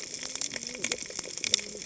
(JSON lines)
{"label": "biophony, cascading saw", "recorder": "HydroMoth"}